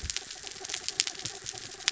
{"label": "anthrophony, mechanical", "recorder": "SoundTrap 300"}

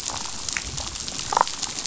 {"label": "biophony, damselfish", "recorder": "SoundTrap 500"}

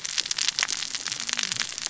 {"label": "biophony, cascading saw", "recorder": "SoundTrap 600 or HydroMoth"}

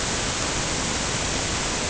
{"label": "ambient", "recorder": "HydroMoth"}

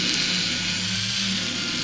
{"label": "anthrophony, boat engine", "recorder": "SoundTrap 500"}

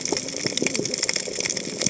{"label": "biophony, cascading saw", "recorder": "HydroMoth"}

